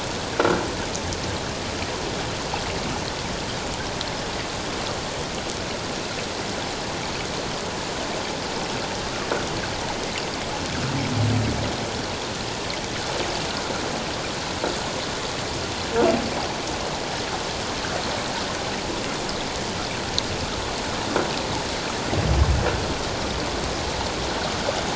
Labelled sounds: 0.3	0.6	croaking sound likely from a nearby submerged object, 1.3 to 1.7 kHz

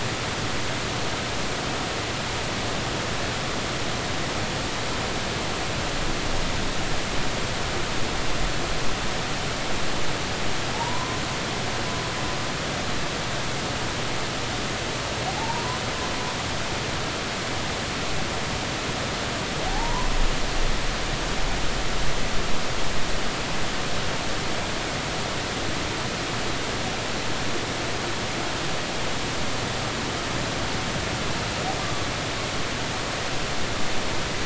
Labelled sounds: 10.7	11.2	humpback whale, 0.80 to 1.1 kHz
15.3	15.8	humpback whale, 0.80 to 1.1 kHz
19.7	20.2	humpback whale, 0.80 to 1.1 kHz
31.8	32.1	humpback whale, 1.1 to 1.2 kHz

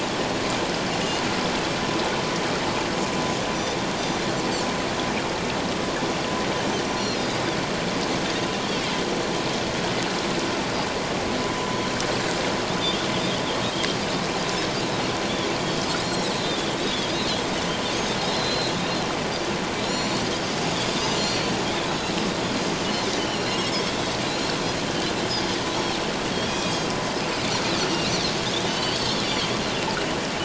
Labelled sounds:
4.0	4.2	Pacific white-sided dolphin, 5.8 to 6.0 kHz
7.0	7.2	Pacific white-sided dolphin, 4.1 to 4.4 kHz
16.0	16.3	Pacific white-sided dolphin, 3.7 to 4.3 kHz
17.1	17.4	Pacific white-sided dolphin, 3.5 to 4.2 kHz
18.3	18.7	Pacific white-sided dolphin, 4.0 to 4.4 kHz
19.8	20.3	Pacific white-sided dolphin, 3.8 to 7.3 kHz
21.0	21.5	Pacific white-sided dolphin, 4.1 to 6.2 kHz
23.2	23.9	Pacific white-sided dolphin, 2.7 to 5.5 kHz
26.3	26.9	Pacific white-sided dolphin, 2.4 to 6.6 kHz
27.9	28.1	Pacific white-sided dolphin, 2.7 to 2.9 kHz
28.6	29.5	Pacific white-sided dolphin, 2.8 to 4.6 kHz

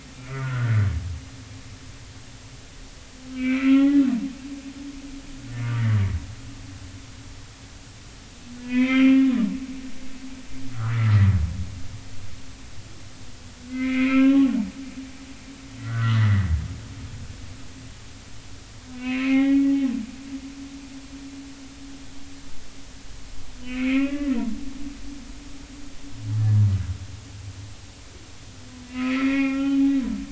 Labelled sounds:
0.3	0.9	humpback whale, 1.3 to 1.6 kHz
3.3	4.0	humpback whale, 0.80 to 2.8 kHz
8.6	9.4	humpback whale, 0.93 to 2.6 kHz
10.7	11.3	humpback whale, 0.96 to 2.1 kHz
13.7	14.5	humpback whale, 1.0 to 2.8 kHz
15.8	16.5	humpback whale, 1.1 to 2.0 kHz
19.0	19.7	humpback whale, 0.80 to 3.1 kHz
23.6	24.4	humpback whale, 1.0 to 2.9 kHz
26.4	26.7	humpback whale, 1.6 to 1.8 kHz
28.9	29.8	humpback whale, 1.0 to 3.1 kHz

